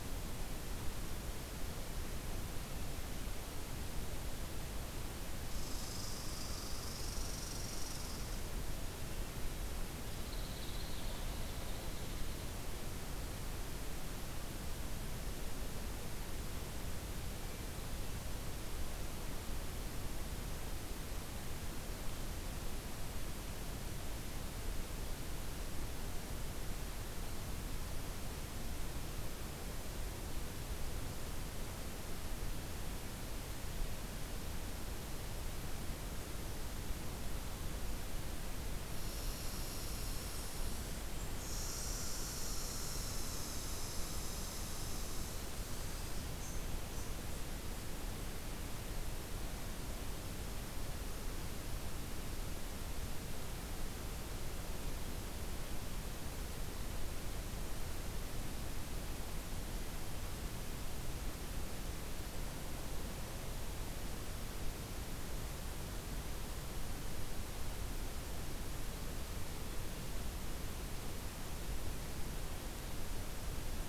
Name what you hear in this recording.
Red Squirrel